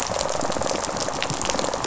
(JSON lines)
{"label": "biophony, rattle response", "recorder": "SoundTrap 500"}